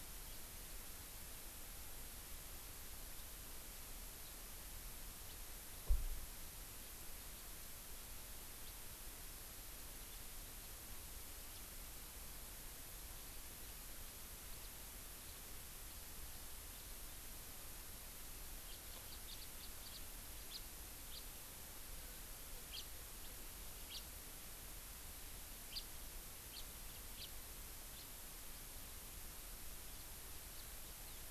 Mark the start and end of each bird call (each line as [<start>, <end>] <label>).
[0.26, 0.46] House Finch (Haemorhous mexicanus)
[3.16, 3.26] House Finch (Haemorhous mexicanus)
[4.26, 4.36] House Finch (Haemorhous mexicanus)
[5.26, 5.36] House Finch (Haemorhous mexicanus)
[8.56, 8.76] House Finch (Haemorhous mexicanus)
[18.66, 19.96] House Finch (Haemorhous mexicanus)
[20.46, 20.56] House Finch (Haemorhous mexicanus)
[21.06, 21.26] House Finch (Haemorhous mexicanus)
[22.66, 22.86] House Finch (Haemorhous mexicanus)
[23.86, 24.06] House Finch (Haemorhous mexicanus)
[25.66, 25.86] House Finch (Haemorhous mexicanus)
[26.56, 26.66] House Finch (Haemorhous mexicanus)
[27.16, 27.26] House Finch (Haemorhous mexicanus)
[27.96, 28.06] House Finch (Haemorhous mexicanus)
[30.56, 30.66] House Finch (Haemorhous mexicanus)